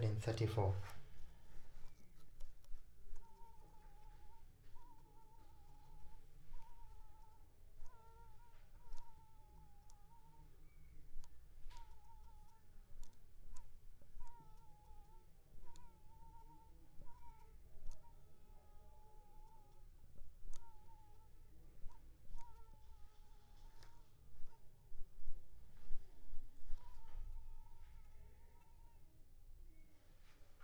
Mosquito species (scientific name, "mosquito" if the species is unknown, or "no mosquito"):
Culex pipiens complex